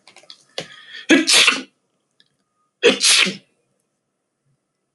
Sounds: Sneeze